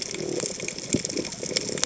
{"label": "biophony", "recorder": "HydroMoth"}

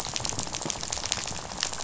{"label": "biophony, rattle", "recorder": "SoundTrap 500"}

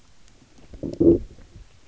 {"label": "biophony, low growl", "recorder": "SoundTrap 300"}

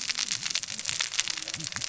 {"label": "biophony, cascading saw", "recorder": "SoundTrap 600 or HydroMoth"}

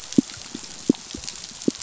{"label": "biophony, pulse", "recorder": "SoundTrap 500"}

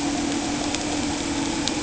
{"label": "anthrophony, boat engine", "recorder": "HydroMoth"}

